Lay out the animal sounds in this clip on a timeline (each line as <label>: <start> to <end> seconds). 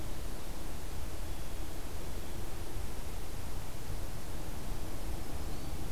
Black-throated Green Warbler (Setophaga virens): 4.9 to 5.8 seconds